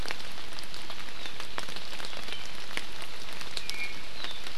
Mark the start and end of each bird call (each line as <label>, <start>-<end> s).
Iiwi (Drepanis coccinea), 3.6-4.0 s